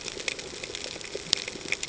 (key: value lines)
label: ambient
recorder: HydroMoth